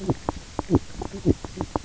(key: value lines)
label: biophony, knock croak
recorder: SoundTrap 300